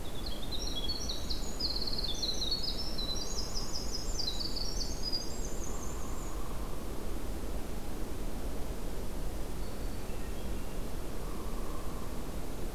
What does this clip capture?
Winter Wren, Hairy Woodpecker, Black-throated Green Warbler, Hermit Thrush